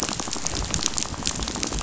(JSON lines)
{"label": "biophony, rattle", "recorder": "SoundTrap 500"}